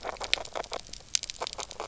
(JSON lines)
{"label": "biophony, knock croak", "recorder": "SoundTrap 300"}